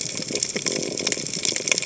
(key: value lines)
label: biophony
recorder: HydroMoth